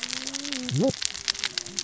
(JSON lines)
{"label": "biophony, cascading saw", "recorder": "SoundTrap 600 or HydroMoth"}